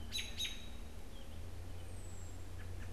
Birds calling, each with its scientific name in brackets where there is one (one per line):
American Robin (Turdus migratorius)